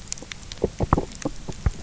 {"label": "biophony, knock croak", "recorder": "SoundTrap 300"}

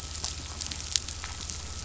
{"label": "anthrophony, boat engine", "recorder": "SoundTrap 500"}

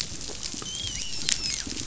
{"label": "biophony, dolphin", "recorder": "SoundTrap 500"}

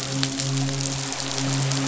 {"label": "biophony, midshipman", "recorder": "SoundTrap 500"}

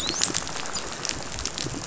{"label": "biophony, dolphin", "recorder": "SoundTrap 500"}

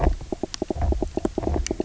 {"label": "biophony, knock croak", "recorder": "SoundTrap 300"}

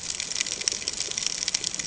{"label": "ambient", "recorder": "HydroMoth"}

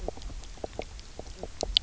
{"label": "biophony, knock croak", "recorder": "SoundTrap 300"}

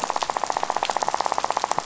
{"label": "biophony, rattle", "recorder": "SoundTrap 500"}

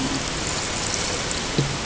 {"label": "ambient", "recorder": "HydroMoth"}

